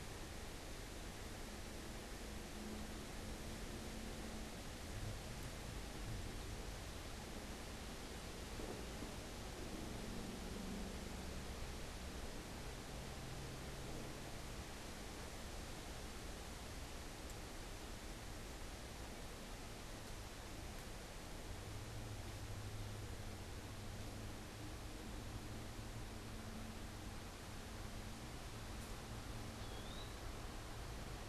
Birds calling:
Eastern Wood-Pewee (Contopus virens)

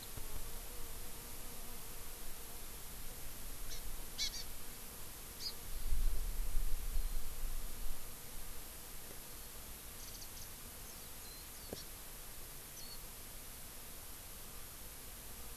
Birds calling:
Hawaii Amakihi (Chlorodrepanis virens)
Warbling White-eye (Zosterops japonicus)

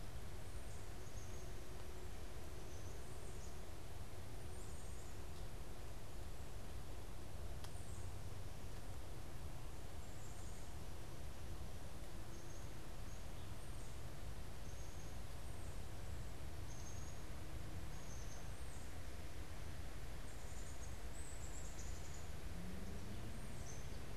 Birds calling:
Tufted Titmouse (Baeolophus bicolor)
Black-capped Chickadee (Poecile atricapillus)

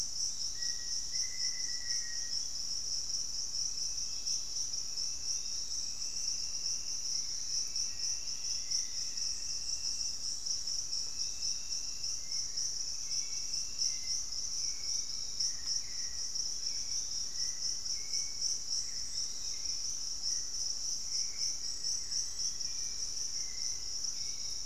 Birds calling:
Pygmy Antwren (Myrmotherula brachyura)
Piratic Flycatcher (Legatus leucophaius)
Hauxwell's Thrush (Turdus hauxwelli)
Black-faced Antthrush (Formicarius analis)

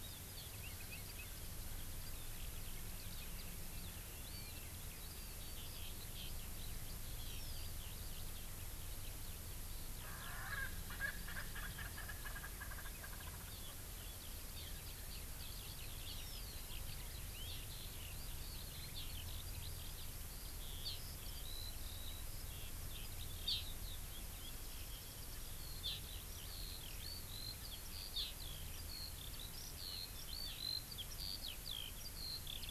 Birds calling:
Hawaii Amakihi (Chlorodrepanis virens)
Erckel's Francolin (Pternistis erckelii)
Eurasian Skylark (Alauda arvensis)

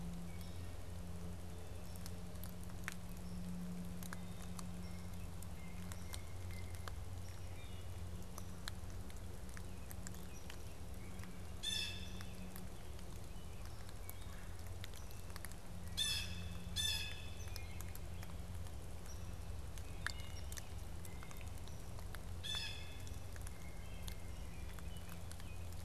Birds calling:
Wood Thrush (Hylocichla mustelina)
American Robin (Turdus migratorius)
Blue Jay (Cyanocitta cristata)

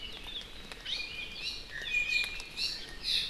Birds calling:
Iiwi (Drepanis coccinea)

